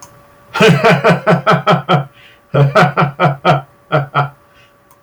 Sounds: Laughter